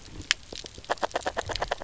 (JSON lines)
{"label": "biophony, knock croak", "recorder": "SoundTrap 300"}